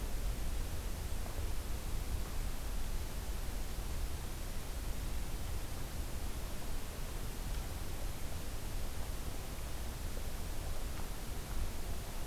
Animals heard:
forest ambience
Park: Acadia National Park